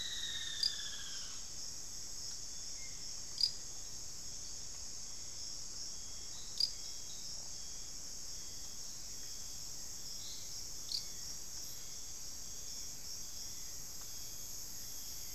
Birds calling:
Hauxwell's Thrush (Turdus hauxwelli)
Plain-brown Woodcreeper (Dendrocincla fuliginosa)

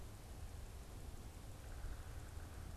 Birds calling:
unidentified bird

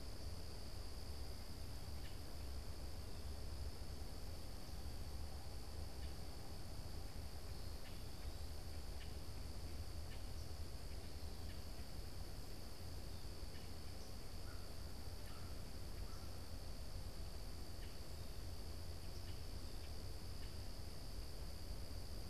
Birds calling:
American Crow (Corvus brachyrhynchos)
Common Grackle (Quiscalus quiscula)

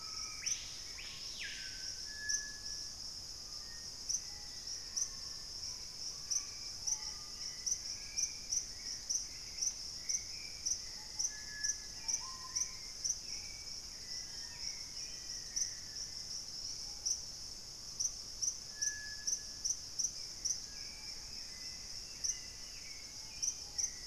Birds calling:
Screaming Piha (Lipaugus vociferans)
Olivaceous Woodcreeper (Sittasomus griseicapillus)
Purple-throated Euphonia (Euphonia chlorotica)
Spot-winged Antshrike (Pygiptila stellaris)
Black-faced Antthrush (Formicarius analis)
Hauxwell's Thrush (Turdus hauxwelli)
Gray Antbird (Cercomacra cinerascens)

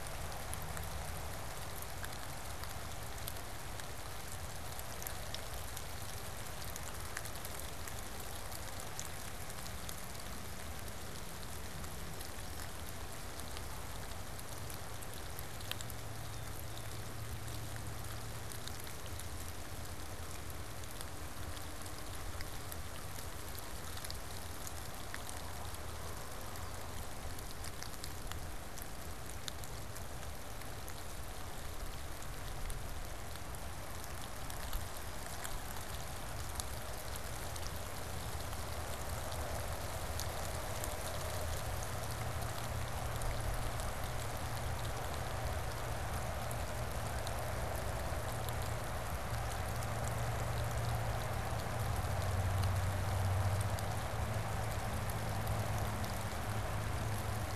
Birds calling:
Blue Jay (Cyanocitta cristata)

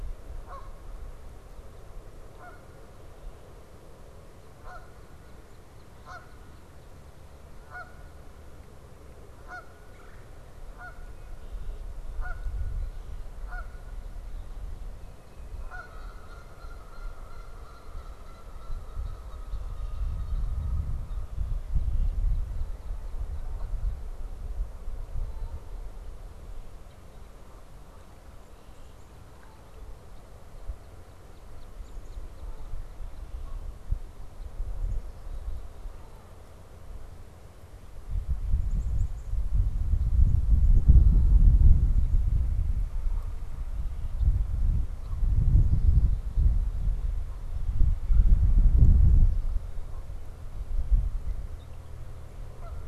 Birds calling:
Red-winged Blackbird (Agelaius phoeniceus)
Black-capped Chickadee (Poecile atricapillus)
Canada Goose (Branta canadensis)
Red-bellied Woodpecker (Melanerpes carolinus)

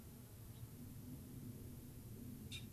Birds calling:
Gray-crowned Rosy-Finch (Leucosticte tephrocotis)

